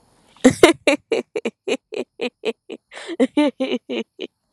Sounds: Laughter